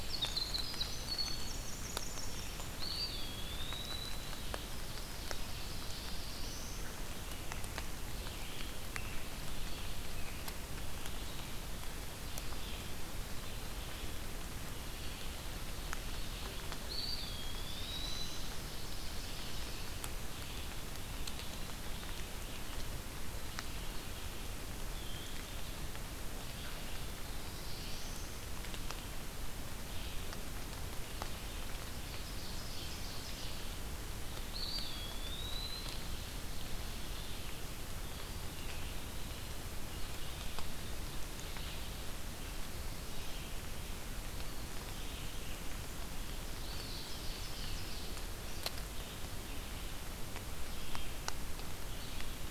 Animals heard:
Black-throated Blue Warbler (Setophaga caerulescens), Red-eyed Vireo (Vireo olivaceus), Winter Wren (Troglodytes hiemalis), Ovenbird (Seiurus aurocapilla), Eastern Wood-Pewee (Contopus virens)

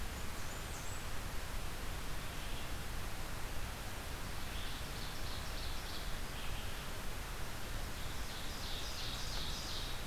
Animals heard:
Red-eyed Vireo (Vireo olivaceus), Ovenbird (Seiurus aurocapilla), Blackburnian Warbler (Setophaga fusca)

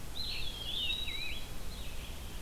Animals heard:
Red-eyed Vireo (Vireo olivaceus), Eastern Wood-Pewee (Contopus virens), Scarlet Tanager (Piranga olivacea)

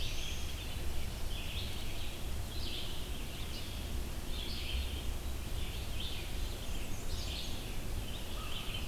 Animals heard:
Red-eyed Vireo (Vireo olivaceus), Black-throated Blue Warbler (Setophaga caerulescens), Black-and-white Warbler (Mniotilta varia), American Crow (Corvus brachyrhynchos)

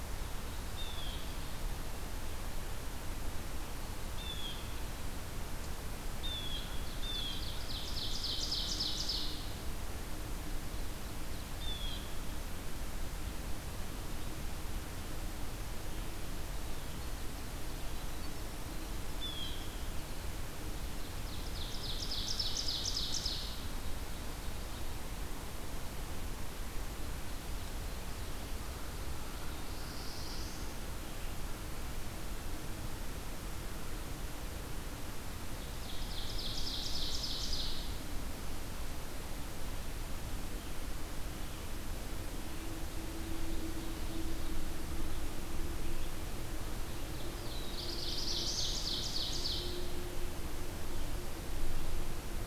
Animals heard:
Black-throated Blue Warbler (Setophaga caerulescens), Blue Jay (Cyanocitta cristata), Ovenbird (Seiurus aurocapilla)

